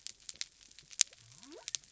{"label": "biophony", "recorder": "SoundTrap 300"}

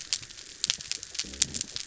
{"label": "biophony", "recorder": "SoundTrap 300"}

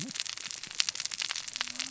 {"label": "biophony, cascading saw", "recorder": "SoundTrap 600 or HydroMoth"}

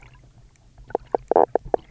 {"label": "biophony, knock croak", "recorder": "SoundTrap 300"}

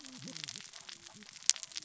{"label": "biophony, cascading saw", "recorder": "SoundTrap 600 or HydroMoth"}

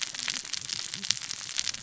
{"label": "biophony, cascading saw", "recorder": "SoundTrap 600 or HydroMoth"}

